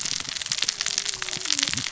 {"label": "biophony, cascading saw", "recorder": "SoundTrap 600 or HydroMoth"}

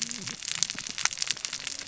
{"label": "biophony, cascading saw", "recorder": "SoundTrap 600 or HydroMoth"}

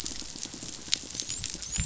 {"label": "biophony, dolphin", "recorder": "SoundTrap 500"}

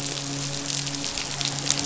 {"label": "biophony, midshipman", "recorder": "SoundTrap 500"}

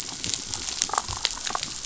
{"label": "biophony, damselfish", "recorder": "SoundTrap 500"}
{"label": "biophony", "recorder": "SoundTrap 500"}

